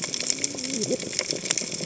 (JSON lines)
{"label": "biophony, cascading saw", "recorder": "HydroMoth"}